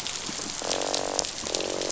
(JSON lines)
{"label": "biophony, croak", "recorder": "SoundTrap 500"}